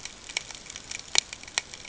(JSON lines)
{"label": "ambient", "recorder": "HydroMoth"}